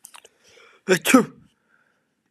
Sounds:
Sneeze